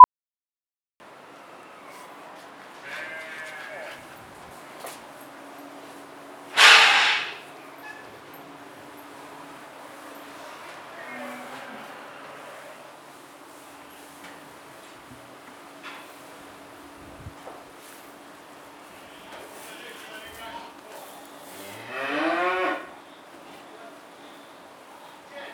What sound is made before the sheeps start to baa?
beeping